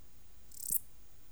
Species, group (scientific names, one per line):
Lluciapomaresius stalii
Orthoptera